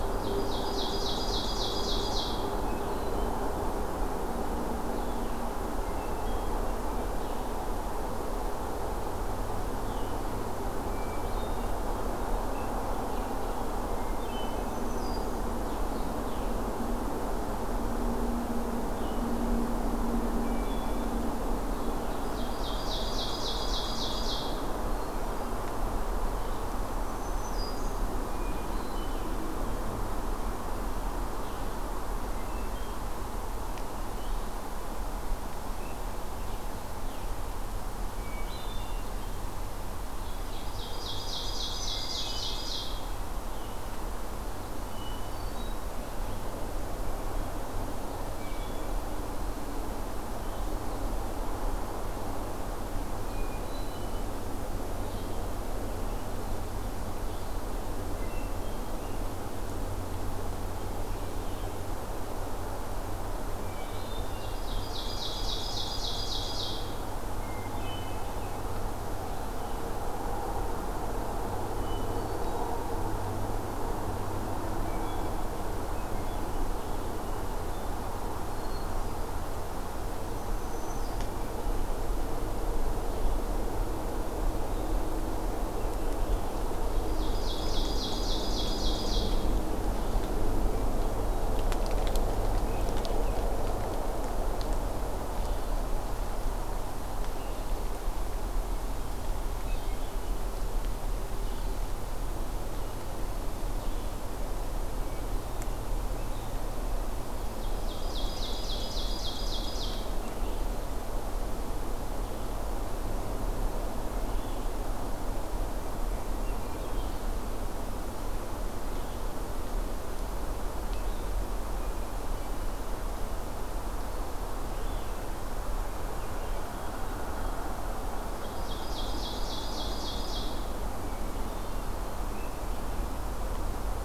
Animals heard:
Hermit Thrush (Catharus guttatus)
Red-eyed Vireo (Vireo olivaceus)
Black-throated Green Warbler (Setophaga virens)
Ovenbird (Seiurus aurocapilla)

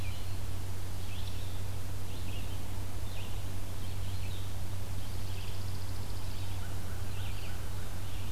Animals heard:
Red-eyed Vireo (Vireo olivaceus)
Chipping Sparrow (Spizella passerina)

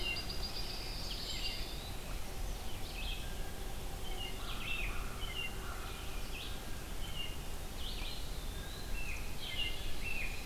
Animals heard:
Blue Jay (Cyanocitta cristata)
Red-eyed Vireo (Vireo olivaceus)
American Crow (Corvus brachyrhynchos)
American Robin (Turdus migratorius)
Song Sparrow (Melospiza melodia)
Eastern Wood-Pewee (Contopus virens)

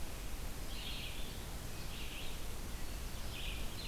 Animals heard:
Red-eyed Vireo (Vireo olivaceus)

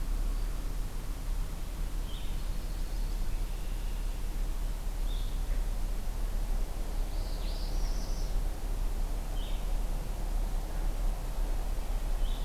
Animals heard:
Red-eyed Vireo (Vireo olivaceus)
Northern Parula (Setophaga americana)
Red-winged Blackbird (Agelaius phoeniceus)

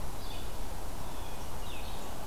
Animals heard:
Red-eyed Vireo (Vireo olivaceus)
Blue Jay (Cyanocitta cristata)

